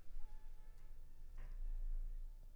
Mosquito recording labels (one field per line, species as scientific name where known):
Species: Culex pipiens complex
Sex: female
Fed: unfed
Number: one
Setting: cup